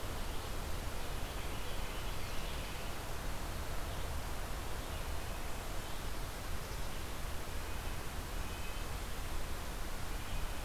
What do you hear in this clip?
Carolina Wren, Red-breasted Nuthatch